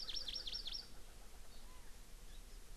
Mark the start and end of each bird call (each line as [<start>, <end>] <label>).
[0.00, 0.81] Hawaii Amakihi (Chlorodrepanis virens)
[0.00, 1.51] Erckel's Francolin (Pternistis erckelii)
[1.61, 1.91] Chinese Hwamei (Garrulax canorus)